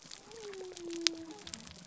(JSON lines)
{"label": "biophony", "recorder": "SoundTrap 300"}